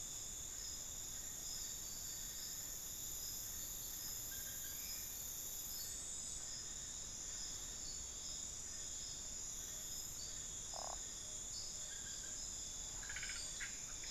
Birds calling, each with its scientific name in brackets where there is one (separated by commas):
unidentified bird